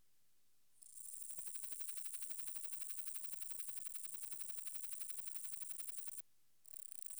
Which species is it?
Parnassiana gionica